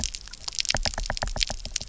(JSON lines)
{"label": "biophony, knock", "recorder": "SoundTrap 300"}